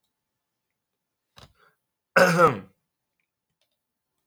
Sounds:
Throat clearing